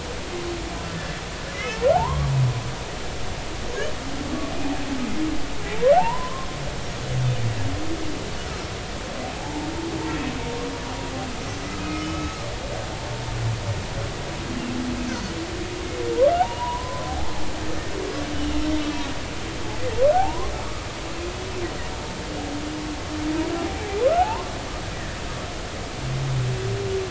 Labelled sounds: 1.5	2.3	humpback whale, 0.80 to 2.3 kHz
5.9	6.5	humpback whale, 0.80 to 1.2 kHz
9.3	9.7	humpback whale, 0.80 to 0.96 kHz
11.8	12.4	humpback whale, 1.2 to 1.3 kHz
16.4	17.3	humpback whale, 0.80 to 1.2 kHz
18.3	18.6	humpback whale, 2.8 to 3.1 kHz
20.1	20.5	humpback whale, 0.80 to 1.1 kHz
23.6	24.5	humpback whale, 0.80 to 1.2 kHz
24.9	25.2	humpback whale, 1.6 to 2.0 kHz

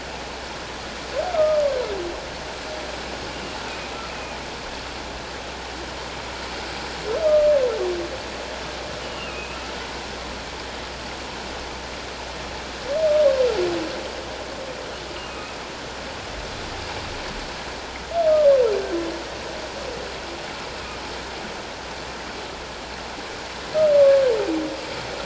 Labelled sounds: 1.3	1.6	humpback whale, 1.2 to 1.4 kHz
4.1	4.4	humpback whale, 2.4 to 2.6 kHz
9.0	9.6	humpback whale, 2.3 to 3.0 kHz
15.3	15.6	humpback whale, 2.4 to 2.7 kHz
20.8	21.0	humpback whale, 2.3 to 2.7 kHz
24.0	24.2	humpback whale, 1.1 to 1.2 kHz

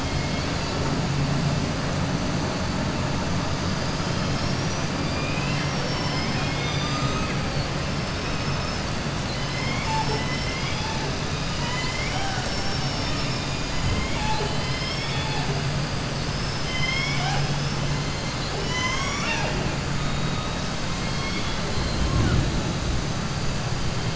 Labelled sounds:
0.0	0.8	killer whale, southern resident, 2.1 to 4.7 kHz
3.9	4.9	killer whale, southern resident, 4.2 to 6.6 kHz
8.0	8.8	killer whale, southern resident, 4.6 to 6.3 kHz
9.2	11.0	killer whale, southern resident, 0.46 to 7.8 kHz
16.2	17.8	killer whale, southern resident, 0.73 to 6.3 kHz
18.1	19.7	killer whale, southern resident, 0.61 to 7.9 kHz

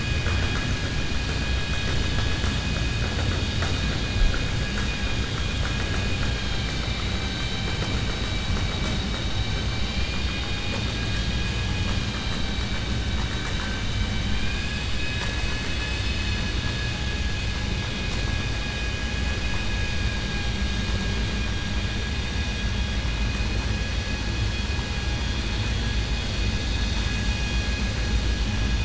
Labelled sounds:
4.9	5.8	vessel noise, 1.2 to 3.5 kHz
9.8	10.8	vessel noise, 0.50 to 4.6 kHz
14.0	14.7	vessel noise, 1.6 to 4.0 kHz

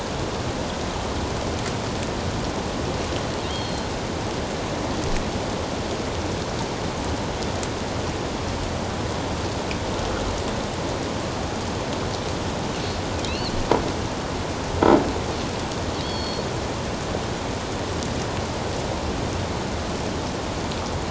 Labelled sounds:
3.5	3.9	killer whale, offshore, 3.1 to 4.4 kHz
13.2	13.6	killer whale, offshore, 3.7 to 4.6 kHz
16.0	16.4	killer whale, offshore, 3.1 to 5.6 kHz

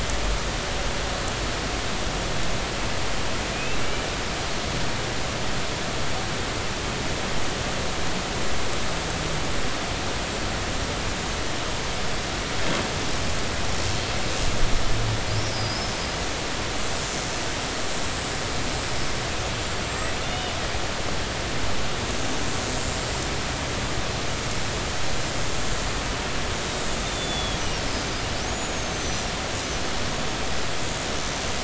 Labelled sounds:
3.5	4.0	humpback whale, 2.2 to 2.8 kHz
15.4	15.9	humpback whale, 4.8 to 5.3 kHz
19.8	20.5	humpback whale, 3.5 to 7.8 kHz
26.6	27.6	humpback whale, 3.3 to 3.8 kHz
28.4	29.3	humpback whale, 5.8 to 7.0 kHz

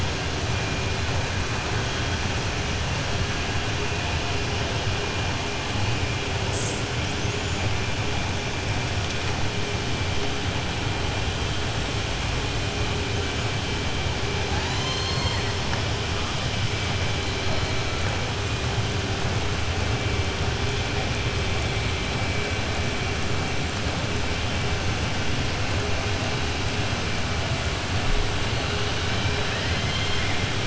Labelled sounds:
14.4	15.5	killer whale, southern resident, 0.76 to 7.5 kHz

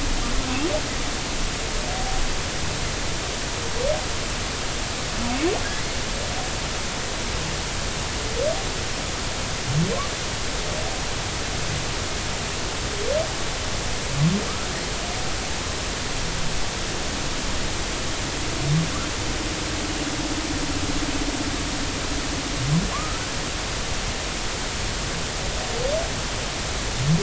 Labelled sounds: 22.9	23.2	humpback whale, 0.99 to 1.4 kHz

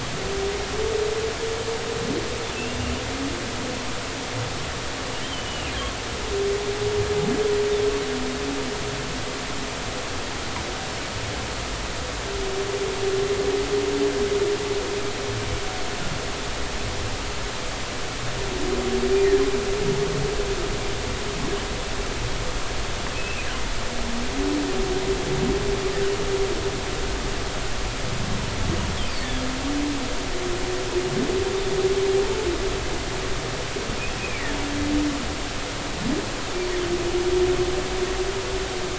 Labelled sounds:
5.2	5.7	humpback whale, 2.7 to 3.3 kHz
23.1	23.5	humpback whale, 2.4 to 2.8 kHz
34.2	34.5	humpback whale, 2.1 to 2.6 kHz

